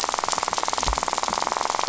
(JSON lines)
{"label": "biophony, rattle", "recorder": "SoundTrap 500"}